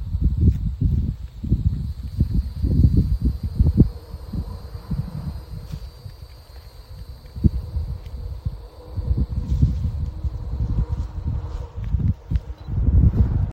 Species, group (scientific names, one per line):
Neocicada hieroglyphica
Cicadidae